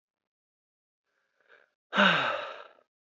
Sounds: Sigh